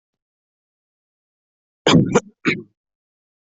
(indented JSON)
{
  "expert_labels": [
    {
      "quality": "poor",
      "cough_type": "unknown",
      "dyspnea": false,
      "wheezing": false,
      "stridor": false,
      "choking": false,
      "congestion": false,
      "nothing": true,
      "diagnosis": "healthy cough",
      "severity": "pseudocough/healthy cough"
    }
  ]
}